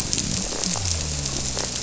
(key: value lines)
label: biophony
recorder: SoundTrap 300